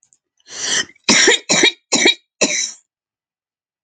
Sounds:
Cough